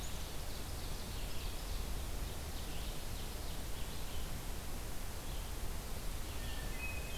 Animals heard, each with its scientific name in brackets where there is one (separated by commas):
Hermit Thrush (Catharus guttatus), Red-eyed Vireo (Vireo olivaceus), Ovenbird (Seiurus aurocapilla)